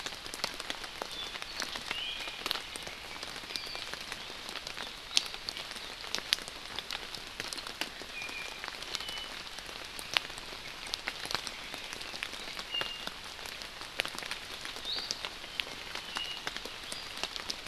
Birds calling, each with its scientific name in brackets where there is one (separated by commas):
Iiwi (Drepanis coccinea)